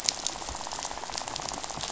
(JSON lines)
{"label": "biophony, rattle", "recorder": "SoundTrap 500"}